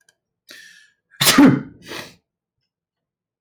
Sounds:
Sneeze